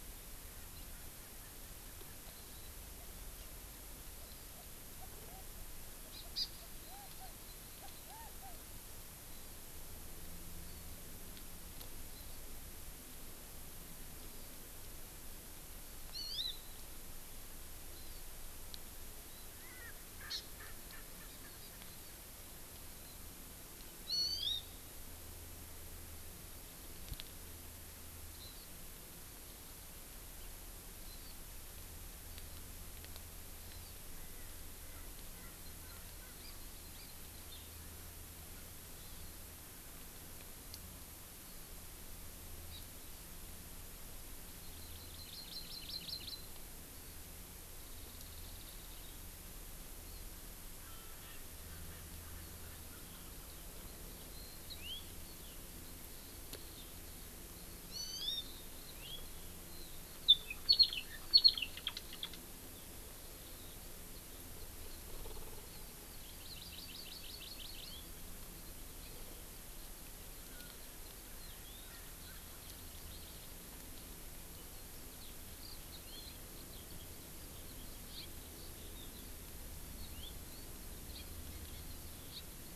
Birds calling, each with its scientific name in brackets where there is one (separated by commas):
Erckel's Francolin (Pternistis erckelii), Hawaii Amakihi (Chlorodrepanis virens), House Finch (Haemorhous mexicanus), Eurasian Skylark (Alauda arvensis)